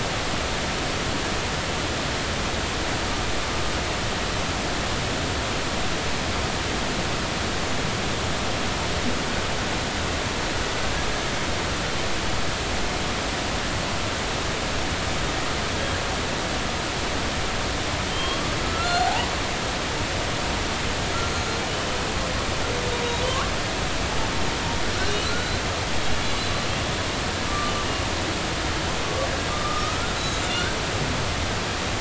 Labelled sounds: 18.1	19.3	humpback whale, 0.80 to 4.4 kHz
23.3	23.5	humpback whale, 1.0 to 1.2 kHz
25.0	25.6	humpback whale, 1.3 to 4.1 kHz
27.4	27.7	humpback whale, 1.1 to 1.2 kHz
29.5	30.7	humpback whale, 1.2 to 7.3 kHz

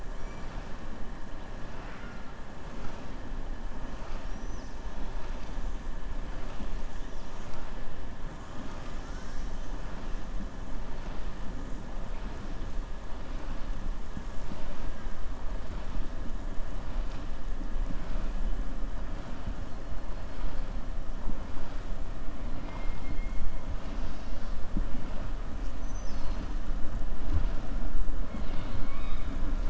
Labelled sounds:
28.2	29.3	killer whale, southern resident, 1.1 to 4.7 kHz

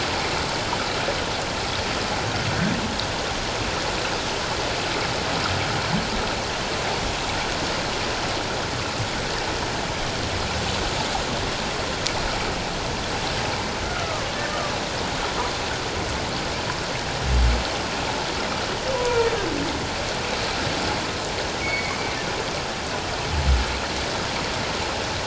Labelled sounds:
13.8	14.2	humpback whale, 1.1 to 1.5 kHz
18.9	19.3	humpback whale, 0.88 to 1.0 kHz
21.6	22.0	humpback whale, 1.9 to 2.3 kHz

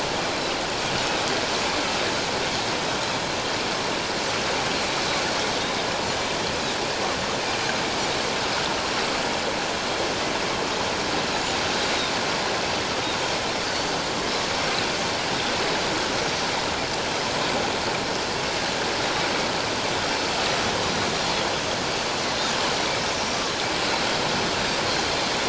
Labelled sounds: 5.6	5.9	Pacific white-sided dolphin, 3.5 to 3.8 kHz
23.2	23.5	Pacific white-sided dolphin, 5.6 to 5.8 kHz

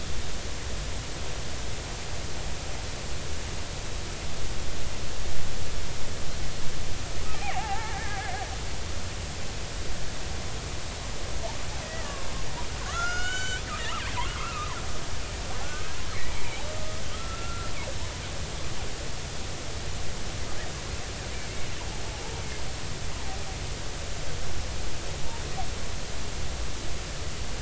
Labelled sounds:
7.3	8.3	killer whale, Bigg's (transient), 0.80 to 2.5 kHz
11.8	12.2	killer whale, Bigg's (transient), 1.6 to 2.0 kHz
12.9	14.7	killer whale, Bigg's (transient), 1.0 to 7.6 kHz
16.1	17.7	killer whale, Bigg's (transient), 1.2 to 2.5 kHz
22.1	22.3	killer whale, Bigg's (transient), 0.80 to 0.96 kHz

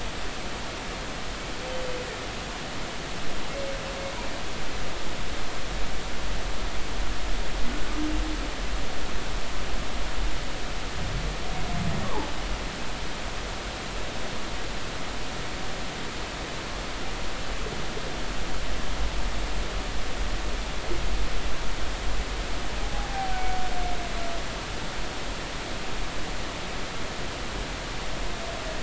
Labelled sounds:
12.0	12.3	humpback whale, 0.80 to 1.2 kHz

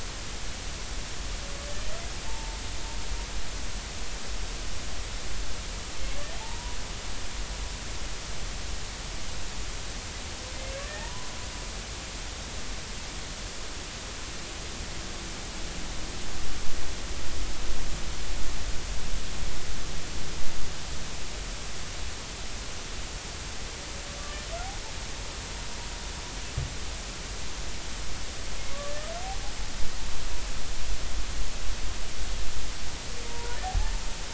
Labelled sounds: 2.3	2.6	humpback whale, 0.86 to 0.96 kHz
6.4	6.8	humpback whale, 0.80 to 1.1 kHz
10.5	11.3	humpback whale, 0.80 to 2.2 kHz
28.7	28.9	humpback whale, 1.1 to 1.2 kHz
33.3	33.6	humpback whale, 0.90 to 0.99 kHz

